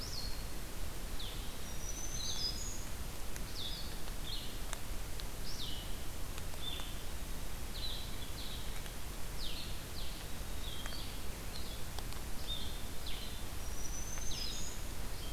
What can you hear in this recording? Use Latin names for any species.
Vireo solitarius, Setophaga virens